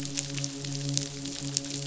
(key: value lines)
label: biophony, midshipman
recorder: SoundTrap 500